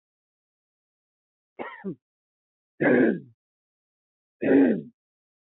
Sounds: Throat clearing